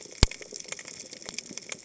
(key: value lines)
label: biophony, cascading saw
recorder: HydroMoth